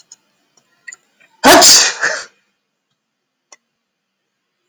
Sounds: Sneeze